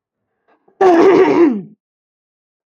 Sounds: Throat clearing